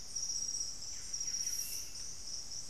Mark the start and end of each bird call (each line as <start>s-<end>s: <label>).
0.0s-2.7s: Golden-crowned Spadebill (Platyrinchus coronatus)
0.8s-1.9s: Buff-breasted Wren (Cantorchilus leucotis)